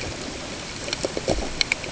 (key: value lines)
label: ambient
recorder: HydroMoth